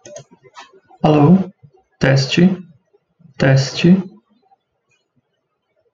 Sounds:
Cough